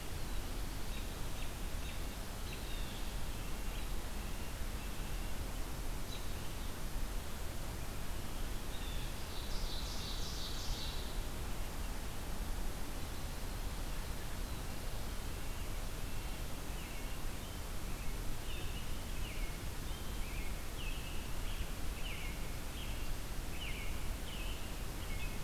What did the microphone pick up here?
American Robin, Blue Jay, Red-breasted Nuthatch, Ovenbird